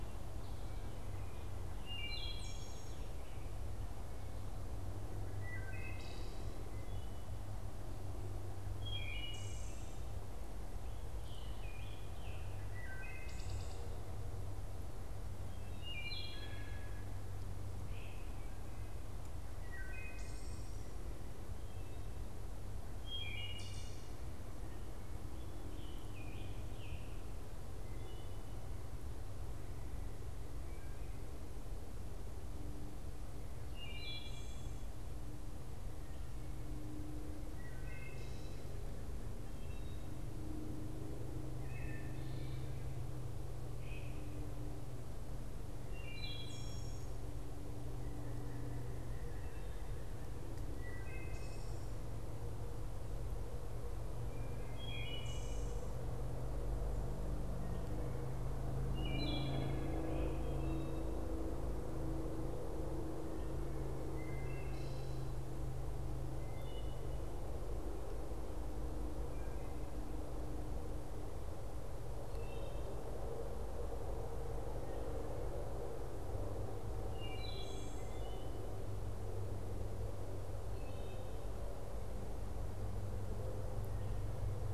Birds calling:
Wood Thrush (Hylocichla mustelina), Scarlet Tanager (Piranga olivacea)

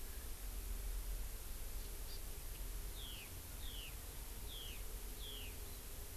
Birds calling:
Hawaii Amakihi (Chlorodrepanis virens), Eurasian Skylark (Alauda arvensis)

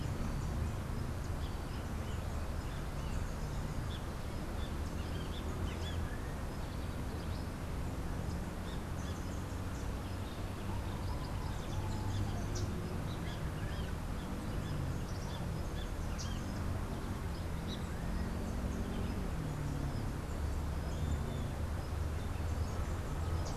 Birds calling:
Yellow Warbler (Setophaga petechia)

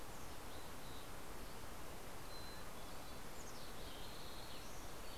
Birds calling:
Mountain Chickadee (Poecile gambeli)

